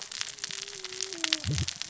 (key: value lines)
label: biophony, cascading saw
recorder: SoundTrap 600 or HydroMoth